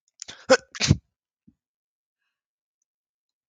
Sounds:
Sneeze